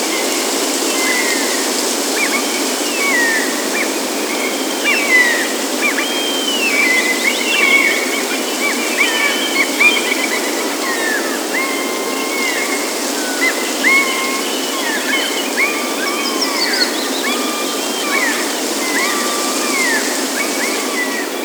Is there a person speaking?
no